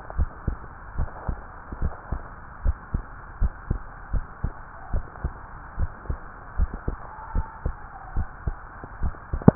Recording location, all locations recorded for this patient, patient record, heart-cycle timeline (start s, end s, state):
tricuspid valve (TV)
aortic valve (AV)+pulmonary valve (PV)+tricuspid valve (TV)+mitral valve (MV)
#Age: Child
#Sex: Female
#Height: 149.0 cm
#Weight: 35.6 kg
#Pregnancy status: False
#Murmur: Absent
#Murmur locations: nan
#Most audible location: nan
#Systolic murmur timing: nan
#Systolic murmur shape: nan
#Systolic murmur grading: nan
#Systolic murmur pitch: nan
#Systolic murmur quality: nan
#Diastolic murmur timing: nan
#Diastolic murmur shape: nan
#Diastolic murmur grading: nan
#Diastolic murmur pitch: nan
#Diastolic murmur quality: nan
#Outcome: Abnormal
#Campaign: 2015 screening campaign
0.00	0.14	unannotated
0.14	0.30	S1
0.30	0.44	systole
0.44	0.58	S2
0.58	0.96	diastole
0.96	1.08	S1
1.08	1.26	systole
1.26	1.40	S2
1.40	1.80	diastole
1.80	1.94	S1
1.94	2.08	systole
2.08	2.20	S2
2.20	2.60	diastole
2.60	2.78	S1
2.78	2.92	systole
2.92	3.06	S2
3.06	3.38	diastole
3.38	3.52	S1
3.52	3.68	systole
3.68	3.80	S2
3.80	4.12	diastole
4.12	4.26	S1
4.26	4.40	systole
4.40	4.52	S2
4.52	4.92	diastole
4.92	5.06	S1
5.06	5.22	systole
5.22	5.32	S2
5.32	5.76	diastole
5.76	5.90	S1
5.90	6.08	systole
6.08	6.20	S2
6.20	6.56	diastole
6.56	6.70	S1
6.70	6.86	systole
6.86	7.00	S2
7.00	7.34	diastole
7.34	7.46	S1
7.46	7.64	systole
7.64	7.78	S2
7.78	8.12	diastole
8.12	8.28	S1
8.28	8.46	systole
8.46	8.60	S2
8.60	8.99	diastole
8.99	9.16	S1
9.16	9.31	systole
9.31	9.45	S2
9.45	9.55	unannotated